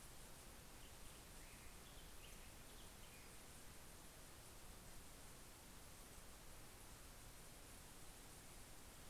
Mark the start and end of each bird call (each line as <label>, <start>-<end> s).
Black-headed Grosbeak (Pheucticus melanocephalus), 0.0-4.1 s